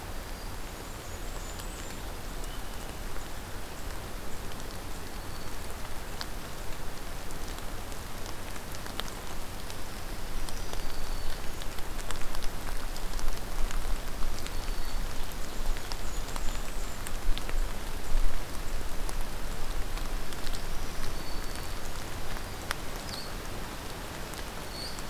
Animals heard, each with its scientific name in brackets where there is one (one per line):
Black-throated Green Warbler (Setophaga virens)
unidentified call
Blackburnian Warbler (Setophaga fusca)
Purple Finch (Haemorhous purpureus)